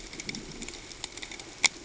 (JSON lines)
{"label": "ambient", "recorder": "HydroMoth"}